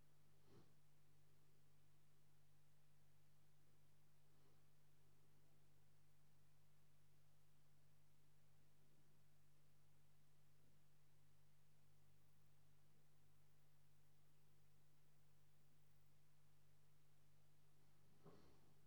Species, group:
Tylopsis lilifolia, Orthoptera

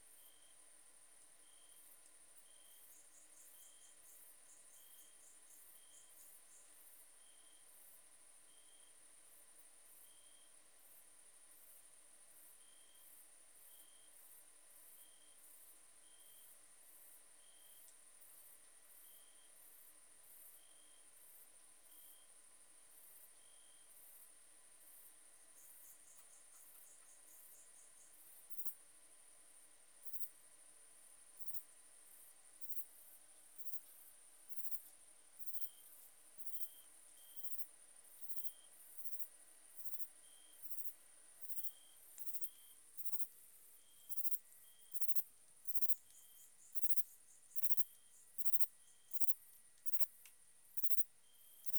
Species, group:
Platycleis grisea, Orthoptera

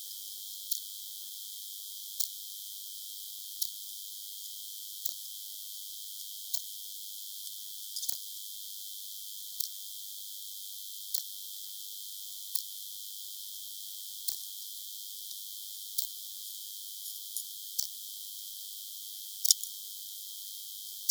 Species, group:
Poecilimon hamatus, Orthoptera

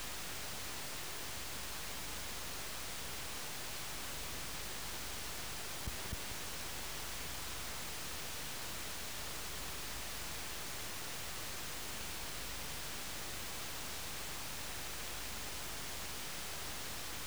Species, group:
Metaplastes ornatus, Orthoptera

